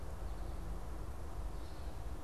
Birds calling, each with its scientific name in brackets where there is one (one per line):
Gray Catbird (Dumetella carolinensis)
American Goldfinch (Spinus tristis)